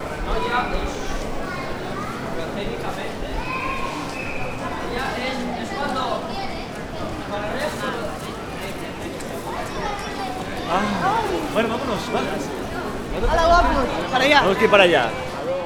is there more than one person?
yes